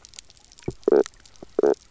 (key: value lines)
label: biophony, knock croak
recorder: SoundTrap 300